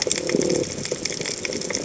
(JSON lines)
{"label": "biophony", "recorder": "HydroMoth"}